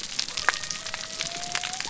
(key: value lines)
label: biophony
recorder: SoundTrap 300